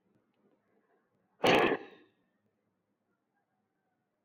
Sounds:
Sigh